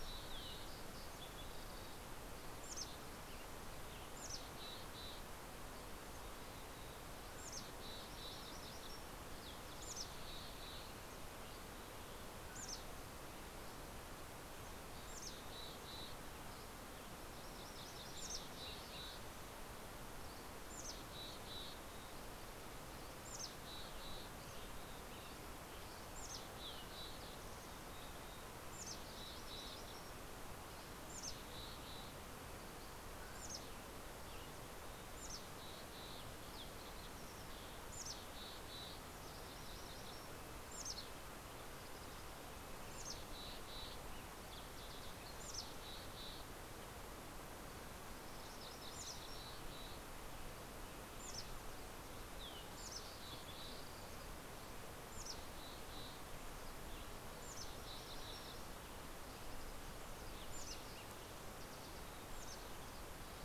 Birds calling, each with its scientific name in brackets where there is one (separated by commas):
Mountain Quail (Oreortyx pictus), Mountain Chickadee (Poecile gambeli), Red-breasted Nuthatch (Sitta canadensis), Dusky Flycatcher (Empidonax oberholseri), MacGillivray's Warbler (Geothlypis tolmiei), Green-tailed Towhee (Pipilo chlorurus), Yellow-rumped Warbler (Setophaga coronata), Western Tanager (Piranga ludoviciana)